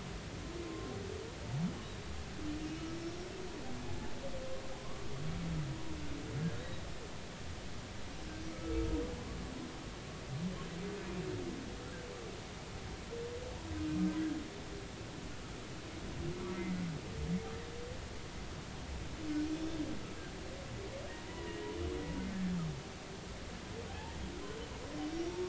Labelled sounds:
2.9	3.3	humpback whale, 5.2 to 5.7 kHz
6.5	6.8	humpback whale, 3.7 to 4.0 kHz
8.5	8.8	humpback whale, 1.2 to 1.3 kHz
11.0	11.2	humpback whale, 2.4 to 2.5 kHz
16.6	16.8	humpback whale, 2.0 to 2.1 kHz
19.5	19.8	humpback whale, 3.4 to 3.7 kHz
21.2	21.7	humpback whale, 0.93 to 2.0 kHz
23.9	24.1	humpback whale, 0.80 to 0.96 kHz

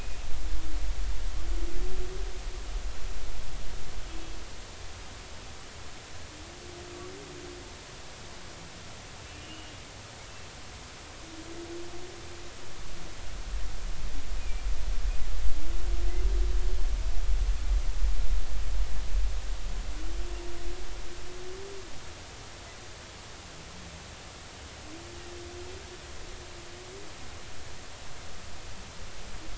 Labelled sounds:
9.4	9.7	humpback whale, 2.8 to 3.0 kHz
14.4	14.6	humpback whale, 2.3 to 2.5 kHz

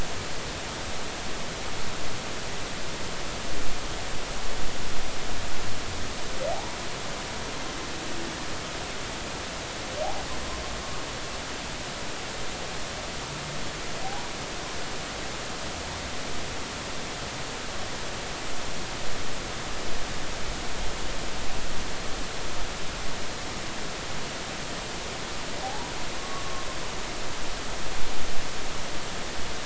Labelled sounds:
6.5	6.8	humpback whale, 0.80 to 0.99 kHz
14.0	14.3	humpback whale, 0.80 to 0.99 kHz
25.6	26.7	humpback whale, 0.80 to 1.2 kHz

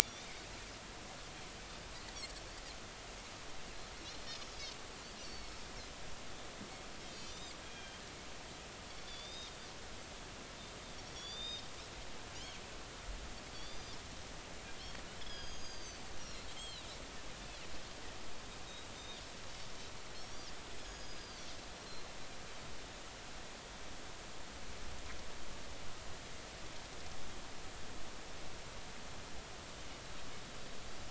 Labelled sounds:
0.0	0.4	Pacific white-sided dolphin, 2.1 to 3.7 kHz
1.0	1.2	Pacific white-sided dolphin, 5.6 to 6.0 kHz
5.2	5.6	Pacific white-sided dolphin, 4.3 to 6.1 kHz
7.0	8.0	Pacific white-sided dolphin, 2.3 to 7.6 kHz
9.1	9.5	Pacific white-sided dolphin, 3.4 to 6.3 kHz
11.1	11.7	Pacific white-sided dolphin, 3.3 to 7.4 kHz
13.5	14.0	Pacific white-sided dolphin, 3.3 to 4.9 kHz
15.2	16.9	Pacific white-sided dolphin, 2.6 to 6.7 kHz
19.0	20.4	Pacific white-sided dolphin, 3.5 to 5.8 kHz
20.8	22.1	Pacific white-sided dolphin, 1.5 to 6.7 kHz

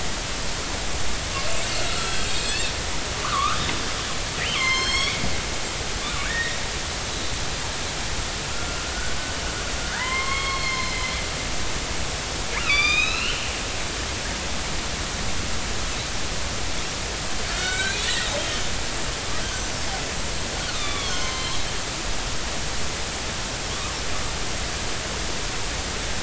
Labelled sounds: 1.9	2.3	killer whale, northern resident, 1.2 to 3.4 kHz
3.2	5.2	killer whale, northern resident, 0.93 to 7.9 kHz
6.2	6.6	killer whale, northern resident, 1.4 to 2.0 kHz
8.5	8.9	killer whale, northern resident, 1.3 to 1.4 kHz
9.9	11.0	killer whale, northern resident, 0.86 to 4.4 kHz
12.6	13.5	killer whale, northern resident, 1.1 to 6.5 kHz
17.4	18.0	killer whale, northern resident, 1.3 to 4.5 kHz
18.4	18.7	killer whale, northern resident, 3.0 to 3.2 kHz
19.5	19.7	killer whale, northern resident, 6.0 to 6.3 kHz
20.7	21.6	killer whale, northern resident, 0.99 to 6.4 kHz
23.7	24.0	killer whale, northern resident, 1.1 to 1.3 kHz

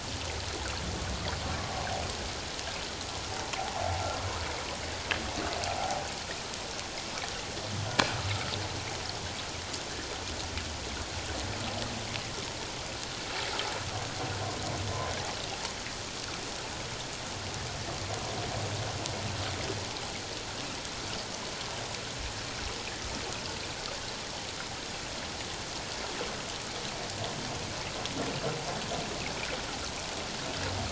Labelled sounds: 1.6	1.9	humpback whale, 0.97 to 1.2 kHz
5.8	6.1	humpback whale, 0.78 to 0.88 kHz

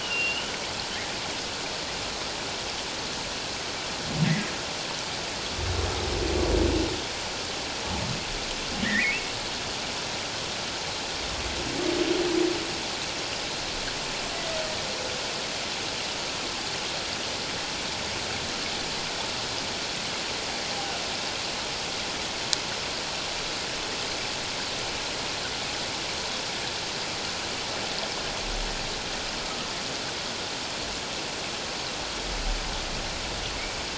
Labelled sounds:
0.0	0.5	humpback whale, 2.6 to 3.0 kHz
4.2	4.5	humpback whale, 1.7 to 2.1 kHz
8.8	9.2	humpback whale, 1.7 to 2.8 kHz
29.4	29.7	humpback whale, 1.1 to 1.3 kHz

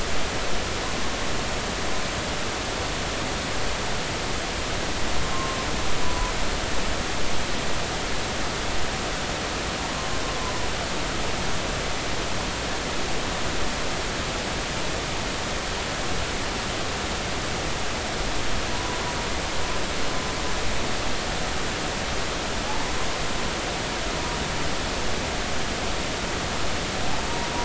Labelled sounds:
5.3	6.3	humpback whale, 0.96 to 1.1 kHz
18.7	19.0	humpback whale, 0.93 to 1.1 kHz

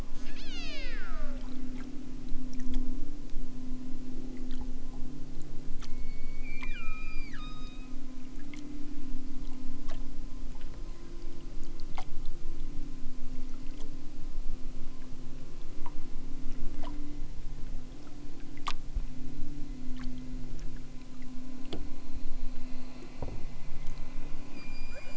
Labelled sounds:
0.1	1.4	killer whale, southern Alaska resident, 0.78 to 8.0 kHz
5.9	8.0	killer whale, southern Alaska resident, 0.87 to 7.8 kHz
24.6	25.1	killer whale, southern Alaska resident, 1.9 to 7.7 kHz

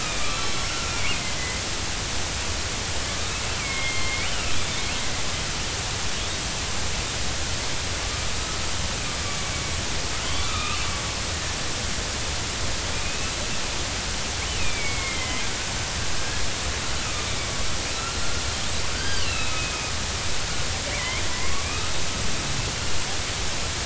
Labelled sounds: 0.0	0.6	killer whale, northern resident, 1.1 to 4.1 kHz
0.8	1.6	killer whale, northern resident, 2.0 to 2.6 kHz
3.6	4.5	killer whale, northern resident, 2.0 to 3.3 kHz
10.2	10.9	killer whale, northern resident, 0.96 to 3.8 kHz
13.0	13.3	killer whale, northern resident, 2.4 to 2.7 kHz
14.6	15.5	killer whale, northern resident, 2.0 to 2.7 kHz
16.2	16.4	killer whale, northern resident, 1.6 to 1.8 kHz
17.0	17.3	killer whale, northern resident, 1.2 to 1.3 kHz
18.9	19.9	killer whale, northern resident, 1.4 to 4.9 kHz
20.9	21.9	killer whale, northern resident, 1.1 to 2.7 kHz

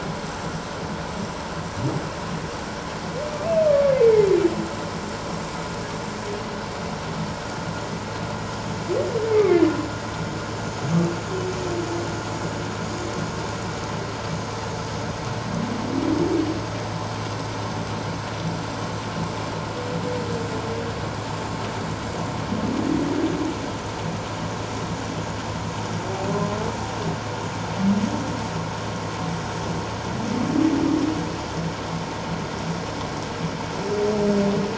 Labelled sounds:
3.4	4.3	humpback whale, 2.0 to 2.7 kHz

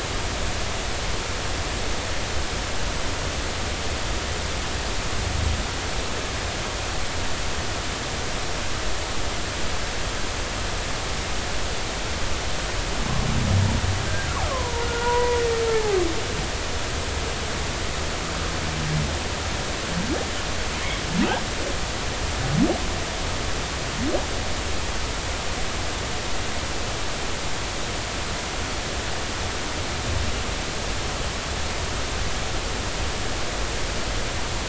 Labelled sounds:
14.4	16.0	humpback whale, 0.80 to 1.5 kHz

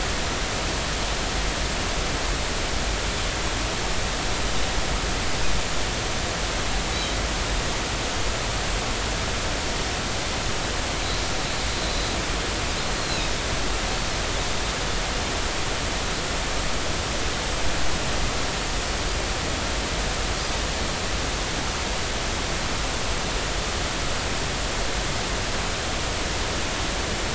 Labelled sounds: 6.9	7.2	Pacific white-sided dolphin, 3.8 to 4.0 kHz
13.0	13.2	Pacific white-sided dolphin, 3.9 to 4.3 kHz

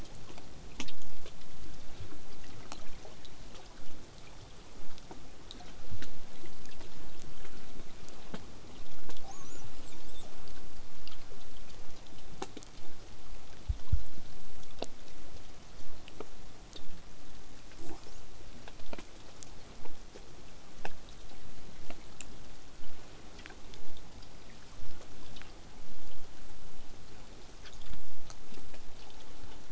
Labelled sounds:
9.2	9.8	killer whale, southern resident, L pod, call S33, 0.50 to 8.0 kHz
9.8	10.2	killer whale, southern resident, 2.0 to 8.0 kHz
17.8	18.6	killer whale, southern resident, L pod, call S08ii, 0.19 to 8.0 kHz
20.8	25.8	vessel noise, 0 to 8.0 kHz

